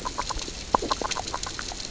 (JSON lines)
{"label": "biophony, grazing", "recorder": "SoundTrap 600 or HydroMoth"}